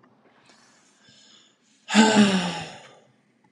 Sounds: Sigh